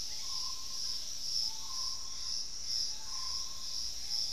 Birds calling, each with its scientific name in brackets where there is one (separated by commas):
Starred Wood-Quail (Odontophorus stellatus), Gray Antbird (Cercomacra cinerascens)